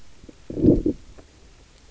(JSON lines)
{"label": "biophony, low growl", "recorder": "SoundTrap 300"}